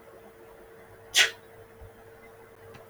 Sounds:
Sneeze